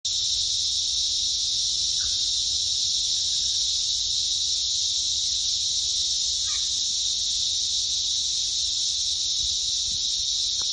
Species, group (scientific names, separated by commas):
Psaltoda plaga, Cicadidae